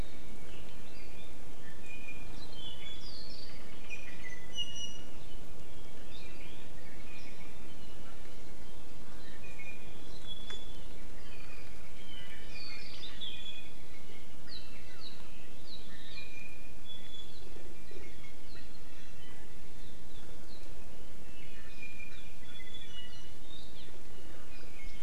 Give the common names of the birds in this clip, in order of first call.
Iiwi